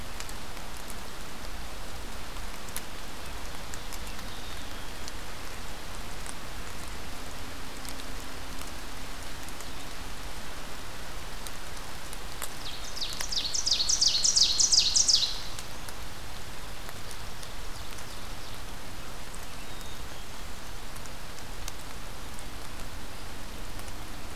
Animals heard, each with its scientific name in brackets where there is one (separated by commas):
Ovenbird (Seiurus aurocapilla), Black-capped Chickadee (Poecile atricapillus)